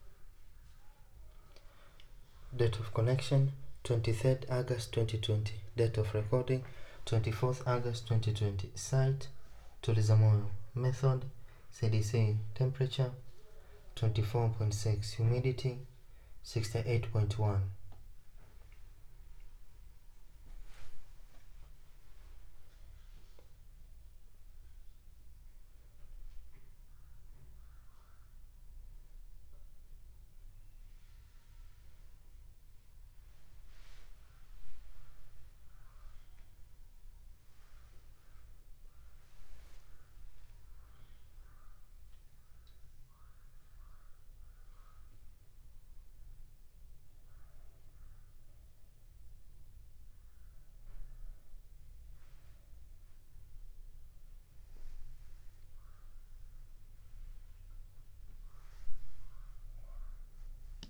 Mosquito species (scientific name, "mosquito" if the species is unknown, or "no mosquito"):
no mosquito